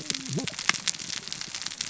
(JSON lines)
{"label": "biophony, cascading saw", "recorder": "SoundTrap 600 or HydroMoth"}